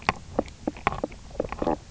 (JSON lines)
{"label": "biophony, knock croak", "recorder": "SoundTrap 300"}